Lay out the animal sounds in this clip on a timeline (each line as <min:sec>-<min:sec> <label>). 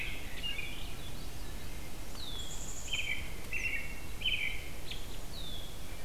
0:00.0-0:01.1 American Robin (Turdus migratorius)
0:00.3-0:02.0 Swainson's Thrush (Catharus ustulatus)
0:02.1-0:02.8 Red-winged Blackbird (Agelaius phoeniceus)
0:02.2-0:03.3 Black-capped Chickadee (Poecile atricapillus)
0:02.8-0:05.2 American Robin (Turdus migratorius)
0:05.2-0:05.8 Red-winged Blackbird (Agelaius phoeniceus)